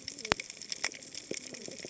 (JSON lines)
{"label": "biophony, cascading saw", "recorder": "HydroMoth"}